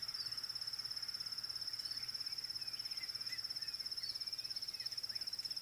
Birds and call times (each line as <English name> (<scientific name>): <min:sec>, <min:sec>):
Klaas's Cuckoo (Chrysococcyx klaas): 0:04.3